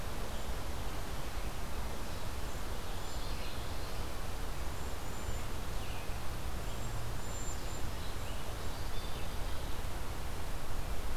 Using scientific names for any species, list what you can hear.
Bombycilla cedrorum, Geothlypis trichas